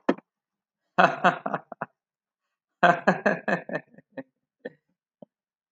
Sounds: Laughter